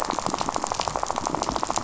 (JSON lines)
{"label": "biophony, rattle", "recorder": "SoundTrap 500"}